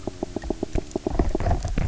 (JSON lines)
{"label": "biophony, knock", "recorder": "SoundTrap 300"}